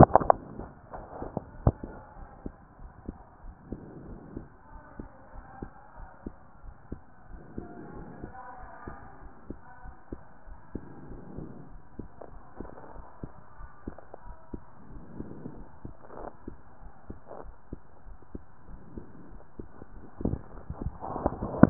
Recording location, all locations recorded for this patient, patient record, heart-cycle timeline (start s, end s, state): pulmonary valve (PV)
pulmonary valve (PV)+tricuspid valve (TV)
#Age: nan
#Sex: Female
#Height: nan
#Weight: nan
#Pregnancy status: True
#Murmur: Absent
#Murmur locations: nan
#Most audible location: nan
#Systolic murmur timing: nan
#Systolic murmur shape: nan
#Systolic murmur grading: nan
#Systolic murmur pitch: nan
#Systolic murmur quality: nan
#Diastolic murmur timing: nan
#Diastolic murmur shape: nan
#Diastolic murmur grading: nan
#Diastolic murmur pitch: nan
#Diastolic murmur quality: nan
#Outcome: Normal
#Campaign: 2015 screening campaign
0.00	2.07	unannotated
2.07	2.14	diastole
2.14	2.28	S1
2.28	2.40	systole
2.40	2.54	S2
2.54	2.78	diastole
2.78	2.92	S1
2.92	3.06	systole
3.06	3.18	S2
3.18	3.40	diastole
3.40	3.56	S1
3.56	3.68	systole
3.68	3.80	S2
3.80	4.04	diastole
4.04	4.18	S1
4.18	4.34	systole
4.34	4.48	S2
4.48	4.68	diastole
4.68	4.82	S1
4.82	4.96	systole
4.96	5.10	S2
5.10	5.32	diastole
5.32	5.46	S1
5.46	5.60	systole
5.60	5.72	S2
5.72	5.95	diastole
5.95	6.08	S1
6.08	6.24	systole
6.24	6.36	S2
6.36	6.62	diastole
6.62	6.76	S1
6.76	6.89	systole
6.89	7.02	S2
7.02	7.28	diastole
7.28	7.44	S1
7.44	7.56	systole
7.56	7.70	S2
7.70	7.94	diastole
7.94	8.08	S1
8.08	8.20	systole
8.20	8.34	S2
8.34	8.58	diastole
8.58	8.72	S1
8.72	8.85	systole
8.85	8.98	S2
8.98	9.21	diastole
9.21	9.32	S1
9.32	9.46	systole
9.46	9.58	S2
9.58	9.84	diastole
9.84	9.94	S1
9.94	10.10	systole
10.10	10.22	S2
10.22	10.46	diastole
10.46	10.58	S1
10.58	10.70	systole
10.70	10.82	S2
10.82	11.08	diastole
11.08	11.22	S1
11.22	11.36	systole
11.36	11.50	S2
11.50	11.70	diastole
11.70	11.82	S1
11.82	11.96	systole
11.96	12.10	S2
12.10	12.31	diastole
12.31	12.42	S1
12.42	12.58	systole
12.58	12.67	S2
12.67	12.94	diastole
12.94	13.04	S1
13.04	13.21	systole
13.21	13.30	S2
13.30	13.58	diastole
13.58	13.70	S1
13.70	13.86	systole
13.86	13.98	S2
13.98	14.24	diastole
14.24	14.36	S1
14.36	14.52	systole
14.52	14.62	S2
14.62	14.90	diastole
14.90	15.02	S1
15.02	15.16	systole
15.16	15.30	S2
15.30	15.56	diastole
15.56	15.68	S1
15.68	15.84	systole
15.84	15.96	S2
15.96	16.17	diastole
16.17	16.32	S1
16.32	16.44	systole
16.44	16.56	S2
16.56	16.80	diastole
16.80	16.92	S1
16.92	17.08	systole
17.08	17.20	S2
17.20	17.44	diastole
17.44	17.54	S1
17.54	17.68	systole
17.68	17.80	S2
17.80	18.06	diastole
18.06	18.18	S1
18.18	18.32	systole
18.32	18.42	S2
18.42	18.70	diastole
18.70	18.80	S1
18.80	18.95	systole
18.95	19.04	S2
19.04	19.30	diastole
19.30	21.70	unannotated